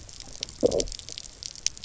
{"label": "biophony, low growl", "recorder": "SoundTrap 300"}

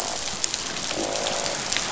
{"label": "biophony, croak", "recorder": "SoundTrap 500"}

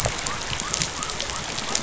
{"label": "biophony", "recorder": "SoundTrap 500"}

